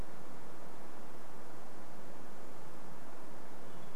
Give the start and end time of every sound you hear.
2s-4s: Hermit Thrush song

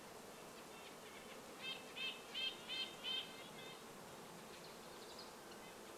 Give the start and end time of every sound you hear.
0s-2s: Red-breasted Nuthatch call
0s-6s: Red-breasted Nuthatch song
0s-6s: insect buzz
4s-6s: Red-breasted Nuthatch call
4s-6s: unidentified sound

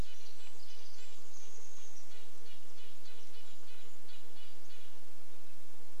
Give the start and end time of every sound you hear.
0s-2s: Chestnut-backed Chickadee call
0s-2s: Pacific Wren song
0s-6s: Red-breasted Nuthatch song
0s-6s: insect buzz
2s-6s: Brown Creeper call

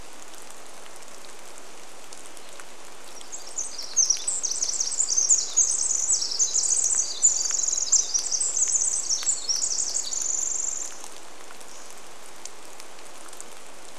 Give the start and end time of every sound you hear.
0s-14s: rain
2s-12s: Pacific Wren song
10s-12s: Hammond's Flycatcher song

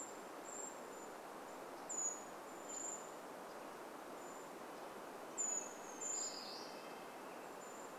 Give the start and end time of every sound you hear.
0s-8s: Brown Creeper call
4s-8s: Brown Creeper song
4s-8s: Red-breasted Nuthatch song

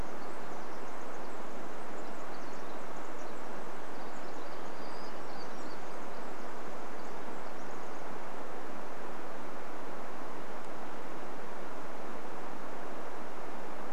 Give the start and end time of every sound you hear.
0s-8s: Pacific Wren song
4s-6s: Townsend's Warbler song

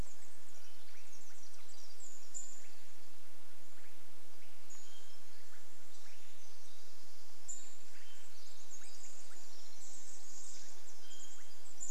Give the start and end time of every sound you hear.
0s-12s: Pacific Wren song
0s-12s: Swainson's Thrush call
2s-8s: Pacific-slope Flycatcher call
8s-12s: insect buzz
10s-12s: Chestnut-backed Chickadee call
10s-12s: Pacific-slope Flycatcher call
10s-12s: unidentified sound

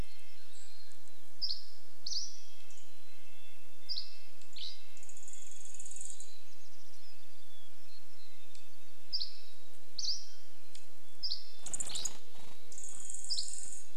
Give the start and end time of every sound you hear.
0s-2s: Hermit Thrush call
0s-6s: Dusky Flycatcher song
0s-14s: Red-breasted Nuthatch song
2s-4s: Mountain Chickadee song
4s-8s: Dark-eyed Junco call
6s-8s: Hermit Thrush call
6s-10s: Mountain Chickadee song
8s-14s: Dusky Flycatcher song
10s-14s: Dark-eyed Junco call
10s-14s: Mountain Quail call
10s-14s: bird wingbeats

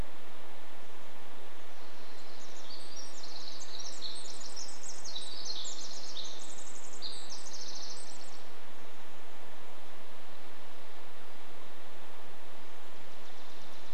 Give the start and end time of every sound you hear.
0s-10s: Pacific Wren song
12s-14s: Dark-eyed Junco song

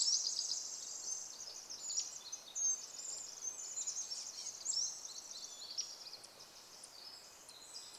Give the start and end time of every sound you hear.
0s-8s: Pacific Wren song
2s-8s: Red-breasted Nuthatch song
4s-6s: Chestnut-backed Chickadee call
4s-6s: Hermit Thrush song
4s-6s: Pacific-slope Flycatcher song

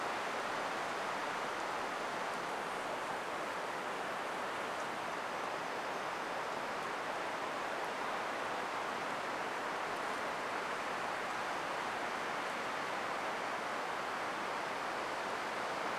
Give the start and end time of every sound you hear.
0s-8s: insect buzz
10s-12s: insect buzz

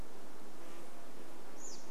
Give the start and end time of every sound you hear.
0s-2s: American Robin call
0s-2s: insect buzz

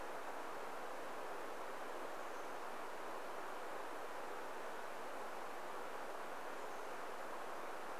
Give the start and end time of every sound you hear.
2s-4s: Chestnut-backed Chickadee call
6s-8s: Chestnut-backed Chickadee call

